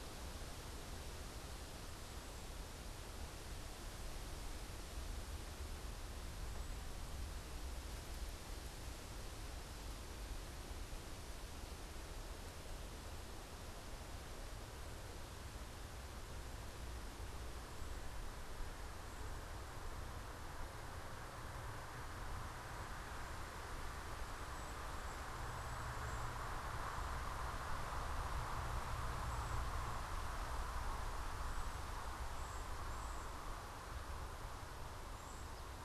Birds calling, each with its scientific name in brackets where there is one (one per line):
Cedar Waxwing (Bombycilla cedrorum)